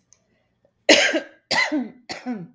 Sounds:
Cough